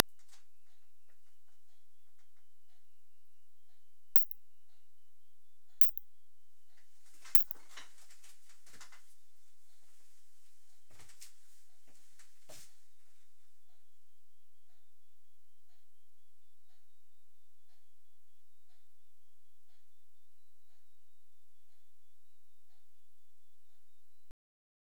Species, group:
Isophya lemnotica
Orthoptera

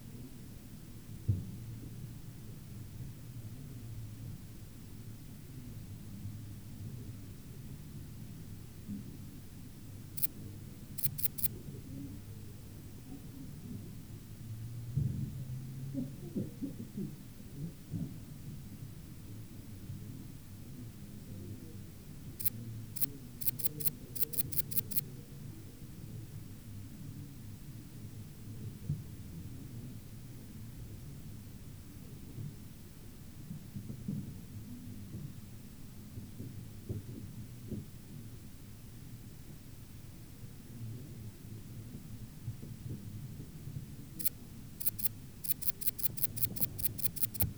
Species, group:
Tessellana tessellata
Orthoptera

